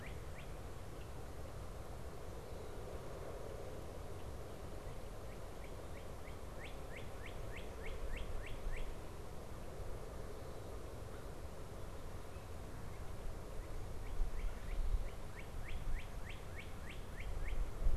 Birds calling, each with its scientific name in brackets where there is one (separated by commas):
American Crow (Corvus brachyrhynchos), Northern Cardinal (Cardinalis cardinalis)